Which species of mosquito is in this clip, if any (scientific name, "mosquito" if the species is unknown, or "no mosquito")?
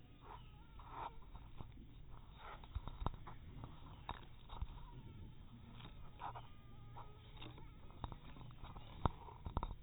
mosquito